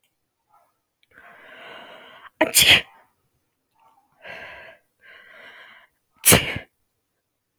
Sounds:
Sneeze